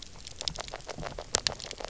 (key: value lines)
label: biophony, knock croak
recorder: SoundTrap 300